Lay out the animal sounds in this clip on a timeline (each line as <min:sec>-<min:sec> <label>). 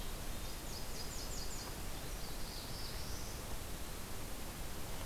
0:00.5-0:02.0 Nashville Warbler (Leiothlypis ruficapilla)
0:02.0-0:03.6 Black-throated Blue Warbler (Setophaga caerulescens)